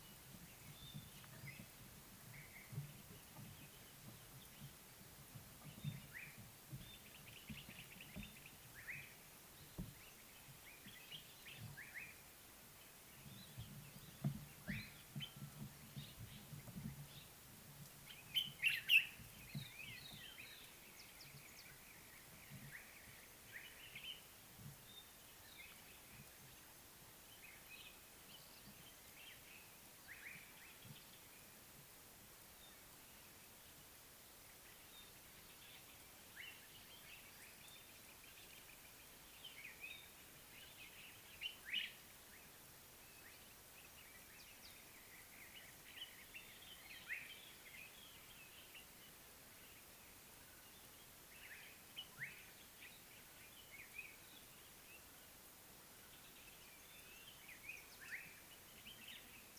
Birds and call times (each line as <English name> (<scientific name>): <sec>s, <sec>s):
Common Bulbul (Pycnonotus barbatus): 18.7s, 41.8s
Brown-crowned Tchagra (Tchagra australis): 22.0s
Slate-colored Boubou (Laniarius funebris): 30.2s